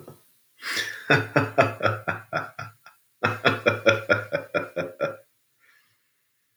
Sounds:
Laughter